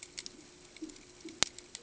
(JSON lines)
{"label": "ambient", "recorder": "HydroMoth"}